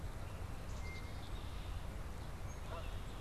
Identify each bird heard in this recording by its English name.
Black-capped Chickadee, Blue Jay, Red-winged Blackbird, Tufted Titmouse, Canada Goose